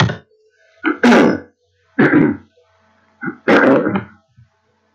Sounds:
Throat clearing